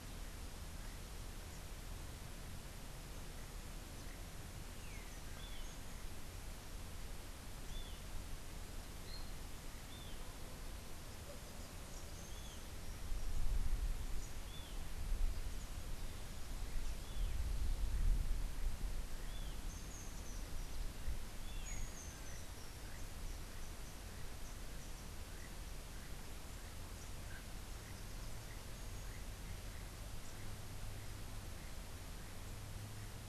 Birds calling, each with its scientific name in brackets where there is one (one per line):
Keel-billed Toucan (Ramphastos sulfuratus)
Long-tailed Manakin (Chiroxiphia linearis)